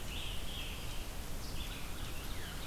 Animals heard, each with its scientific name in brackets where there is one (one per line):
Scarlet Tanager (Piranga olivacea)
Red-eyed Vireo (Vireo olivaceus)